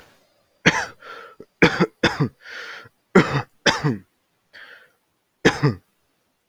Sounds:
Cough